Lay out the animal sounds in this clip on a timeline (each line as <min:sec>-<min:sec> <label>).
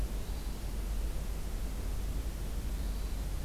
0:00.2-0:00.8 Hermit Thrush (Catharus guttatus)
0:02.8-0:03.2 Hermit Thrush (Catharus guttatus)